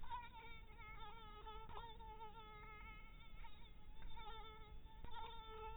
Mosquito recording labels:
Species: mosquito; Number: one; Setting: cup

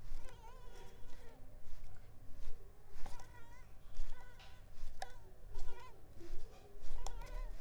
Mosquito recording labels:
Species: Mansonia africanus; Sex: female; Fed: unfed; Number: one; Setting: cup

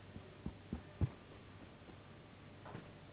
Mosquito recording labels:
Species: Anopheles gambiae s.s.; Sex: female; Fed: unfed; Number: one; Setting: insect culture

